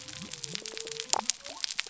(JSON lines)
{"label": "biophony", "recorder": "SoundTrap 300"}